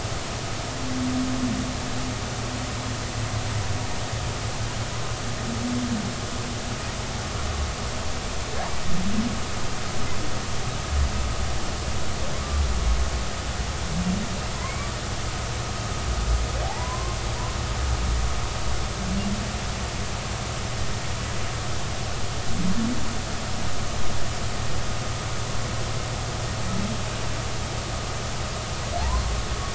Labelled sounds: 15.6	17.2	humpback whale, 0.80 to 2.4 kHz
29.0	29.2	humpback whale, 0.80 to 1.1 kHz

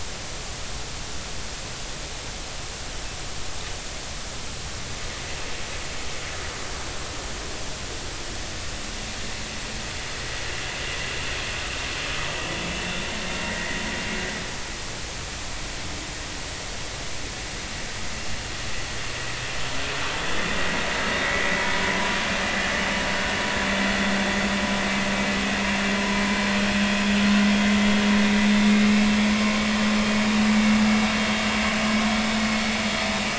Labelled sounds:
13.5	13.8	vessel noise, 1.8 to 2.1 kHz

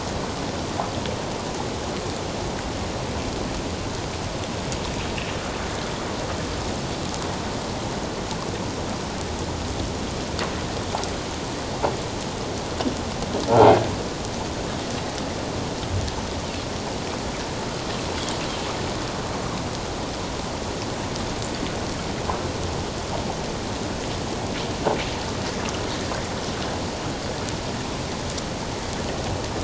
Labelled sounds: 13.5	13.8	croaking sound likely from a nearby submerged object, 0.78 to 0.97 kHz

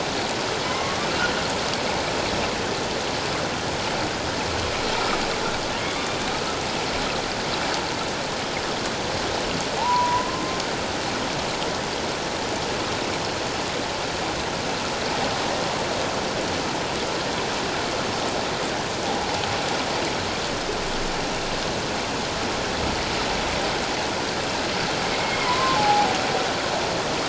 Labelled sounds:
0.6	1.1	humpback whale, 0.97 to 2.2 kHz
9.8	10.6	humpback whale, 0.78 to 1.1 kHz
25.1	26.2	humpback whale, 0.78 to 2.2 kHz

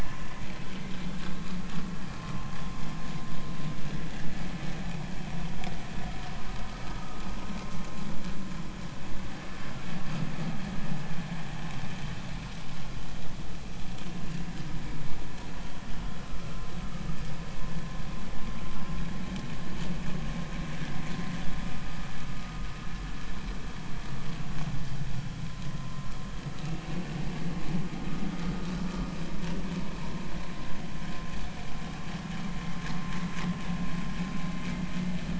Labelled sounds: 0.0	0.3	vessel noise, 0.96 to 1.1 kHz
7.0	7.2	vessel noise, 1.2 to 1.3 kHz
25.8	26.1	vessel noise, 0.96 to 1.1 kHz

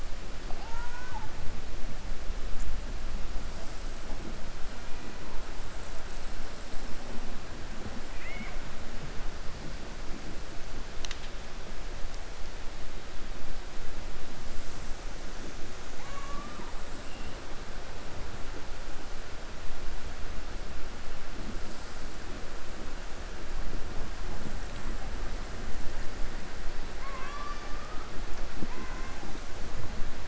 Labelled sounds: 26.9	28.0	killer whale, 0.60 to 5.9 kHz

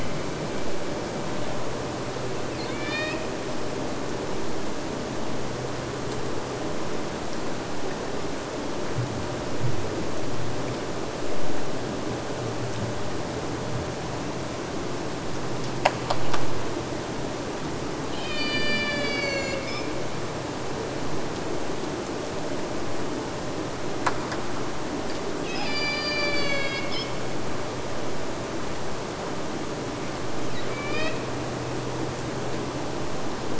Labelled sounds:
2.5	3.5	killer whale, Bigg's (transient), AT1 transient, 1.0 to 8.0 kHz
18.1	20.0	killer whale, Bigg's (transient), AT1 transient, 0.46 to 8.0 kHz
25.5	27.2	killer whale, Bigg's (transient), AT1 transient, 0.46 to 8.0 kHz
30.4	31.4	killer whale, Bigg's (transient), AT1 transient, 0.49 to 5.8 kHz

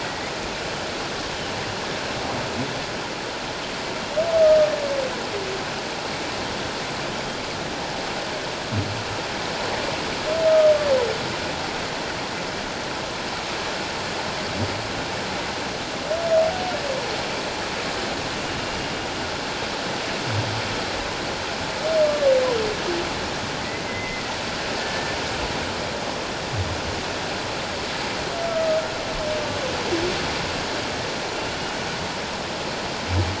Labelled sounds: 0.0	0.3	humpback whale, 1.9 to 2.2 kHz
23.9	25.2	humpback whale, 1.7 to 2.1 kHz

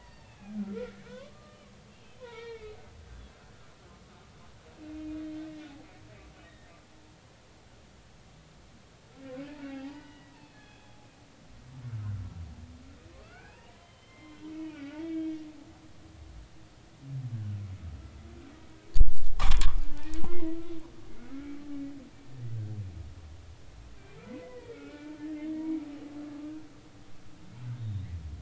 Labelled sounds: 0.0	2.8	humpback whale, 0.86 to 4.6 kHz
4.9	5.7	humpback whale, 1.8 to 2.5 kHz
6.4	6.7	humpback whale, 1.8 to 2.0 kHz
9.6	11.0	humpback whale, 0.80 to 4.5 kHz
13.2	15.4	humpback whale, 0.80 to 3.3 kHz
19.4	20.5	humpback whale, 0.80 to 3.5 kHz
22.3	22.6	humpback whale, 2.1 to 2.4 kHz
24.3	25.2	humpback whale, 1.2 to 2.4 kHz
27.8	28.1	humpback whale, 3.6 to 3.9 kHz

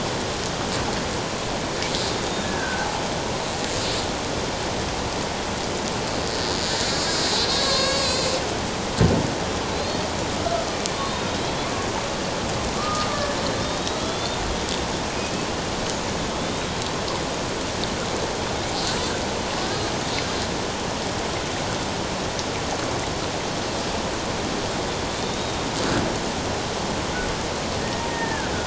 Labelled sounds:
2.4	2.9	killer whale, Bigg's (transient), 1.5 to 1.8 kHz
7.2	8.3	killer whale, Bigg's (transient), 1.0 to 6.8 kHz
9.7	10.0	killer whale, Bigg's (transient), 4.0 to 4.5 kHz
10.9	11.6	killer whale, Bigg's (transient), 3.6 to 4.0 kHz
12.8	14.4	killer whale, Bigg's (transient), 1.1 to 4.1 kHz
16.3	16.7	killer whale, Bigg's (transient), 3.2 to 3.9 kHz
25.2	25.7	killer whale, Bigg's (transient), 3.5 to 3.8 kHz
28.1	28.5	killer whale, Bigg's (transient), 1.4 to 1.9 kHz

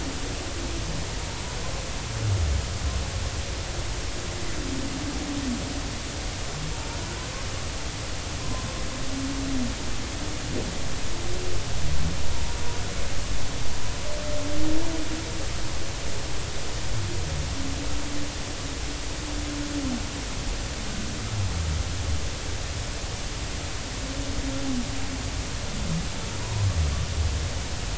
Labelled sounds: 8.4	8.7	humpback whale, 0.99 to 1.1 kHz
12.3	12.6	humpback whale, 0.90 to 1.0 kHz
26.4	26.7	humpback whale, 0.90 to 1.1 kHz

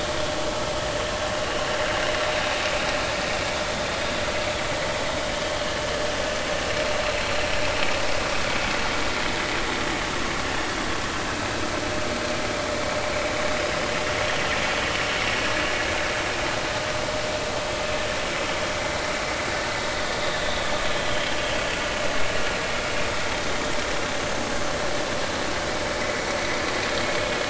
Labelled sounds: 20.3	20.6	vessel noise, 3.4 to 3.8 kHz

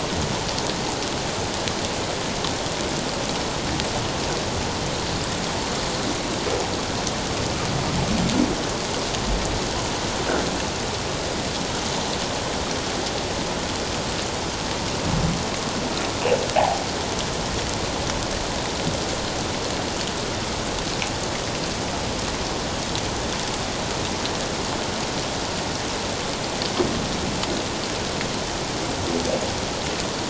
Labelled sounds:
16.6	16.8	humpback whale, 0.78 to 1.1 kHz

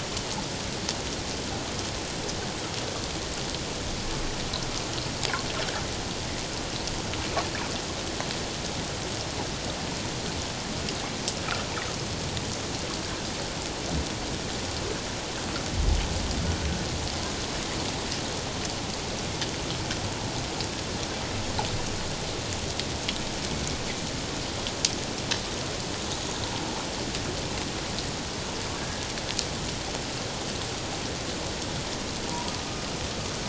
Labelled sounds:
28.8	29.1	humpback whale, 1.6 to 1.7 kHz

